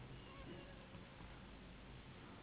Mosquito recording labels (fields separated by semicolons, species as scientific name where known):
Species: Anopheles gambiae s.s.; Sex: female; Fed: unfed; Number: one; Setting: insect culture